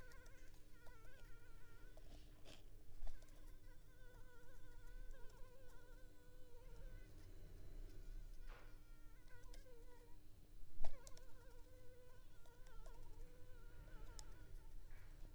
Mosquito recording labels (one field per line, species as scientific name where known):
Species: Anopheles gambiae s.l.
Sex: female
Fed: unfed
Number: one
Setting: cup